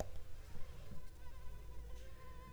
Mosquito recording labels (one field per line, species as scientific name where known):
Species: Culex pipiens complex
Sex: female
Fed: unfed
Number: one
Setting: cup